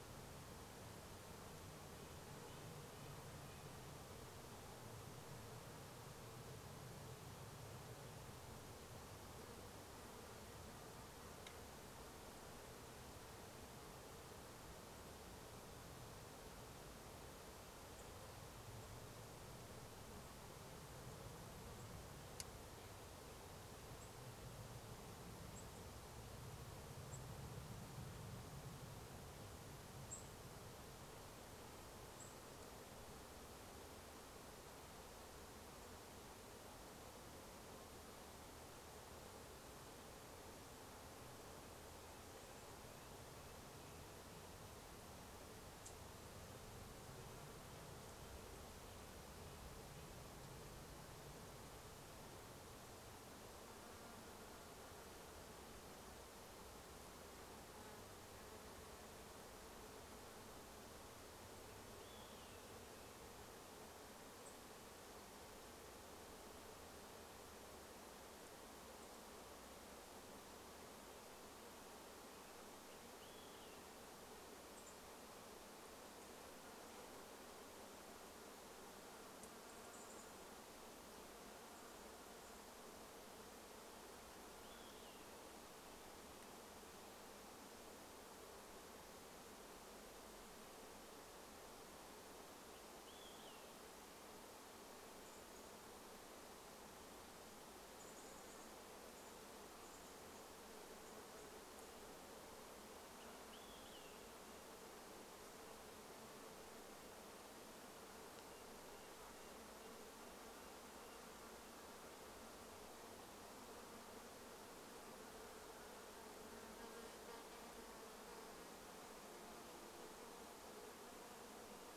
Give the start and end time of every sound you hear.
0s-4s: Red-breasted Nuthatch song
0s-4s: airplane
4s-6s: insect buzz
10s-12s: airplane
14s-16s: airplane
18s-22s: unidentified bird chip note
18s-32s: airplane
24s-28s: unidentified bird chip note
30s-34s: unidentified bird chip note
42s-50s: Red-breasted Nuthatch song
44s-50s: insect buzz
52s-90s: insect buzz
62s-64s: Olive-sided Flycatcher song
64s-66s: unidentified bird chip note
68s-70s: unidentified bird chip note
72s-74s: Olive-sided Flycatcher song
74s-76s: unidentified bird chip note
78s-82s: unidentified sound
84s-86s: Olive-sided Flycatcher song
92s-94s: Olive-sided Flycatcher song
92s-122s: insect buzz
94s-96s: unidentified sound
98s-102s: unidentified sound
100s-102s: Red-breasted Nuthatch song
102s-106s: Olive-sided Flycatcher song
104s-106s: Red-breasted Nuthatch song
108s-112s: Red-breasted Nuthatch song
120s-122s: Red-breasted Nuthatch song

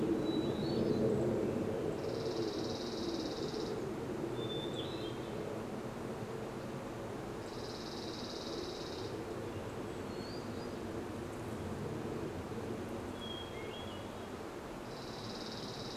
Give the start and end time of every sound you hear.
0s-2s: Hermit Thrush song
0s-2s: unidentified bird chip note
0s-16s: airplane
2s-4s: Dark-eyed Junco song
4s-10s: unidentified bird chip note
4s-16s: Hermit Thrush song
6s-10s: Dark-eyed Junco song
14s-16s: Dark-eyed Junco song

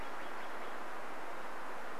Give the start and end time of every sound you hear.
0s-2s: Steller's Jay call

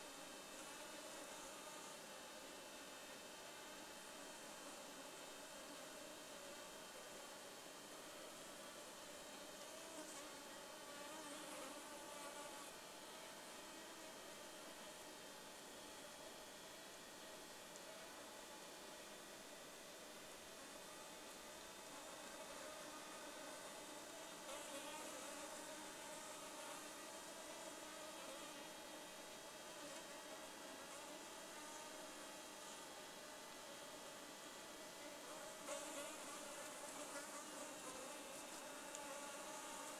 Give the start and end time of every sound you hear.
0s-40s: insect buzz

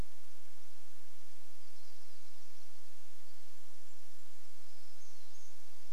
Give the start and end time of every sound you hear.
0s-6s: warbler song
2s-4s: Pine Siskin call
2s-6s: Golden-crowned Kinglet song

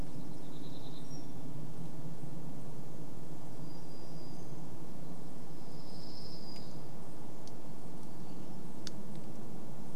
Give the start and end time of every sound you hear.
0s-8s: warbler song
8s-10s: Western Tanager song

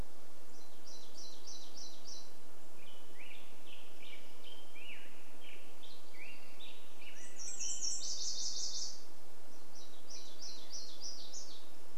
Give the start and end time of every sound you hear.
0s-4s: warbler song
2s-8s: Black-headed Grosbeak song
6s-10s: Nashville Warbler song
8s-12s: warbler song

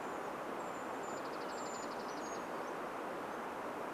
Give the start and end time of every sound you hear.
0s-2s: Brown Creeper call
0s-4s: Dark-eyed Junco song
2s-4s: Brown Creeper song

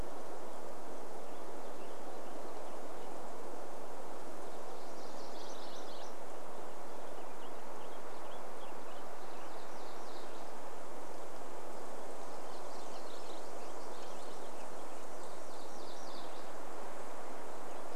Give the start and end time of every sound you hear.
0s-4s: Purple Finch song
4s-6s: MacGillivray's Warbler song
6s-10s: Purple Finch song
8s-18s: MacGillivray's Warbler song
12s-16s: Purple Finch song

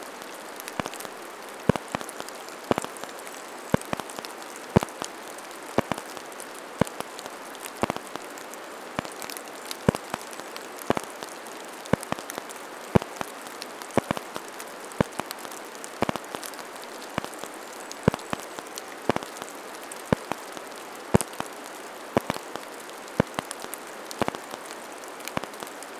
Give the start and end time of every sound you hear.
0s-4s: Golden-crowned Kinglet song
0s-26s: rain
8s-12s: Golden-crowned Kinglet song
16s-20s: Golden-crowned Kinglet song

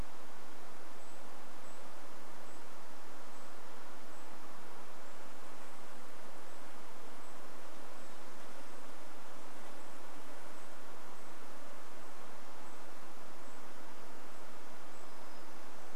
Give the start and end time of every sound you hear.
0s-16s: Golden-crowned Kinglet call
14s-16s: unidentified sound

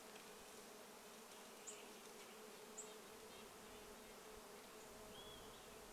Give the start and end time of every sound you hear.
0s-2s: Western Tanager song
0s-4s: unidentified bird chip note
0s-6s: insect buzz
2s-6s: Red-breasted Nuthatch song
4s-6s: Olive-sided Flycatcher song

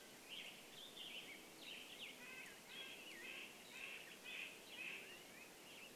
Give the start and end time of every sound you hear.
0s-2s: Mountain Quail call
0s-6s: Black-headed Grosbeak song
0s-6s: Western Tanager song
2s-6s: Band-tailed Pigeon call
2s-6s: Red-breasted Nuthatch song

